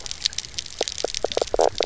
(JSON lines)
{"label": "biophony, knock croak", "recorder": "SoundTrap 300"}